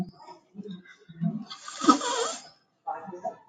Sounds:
Sneeze